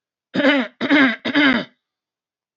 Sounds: Throat clearing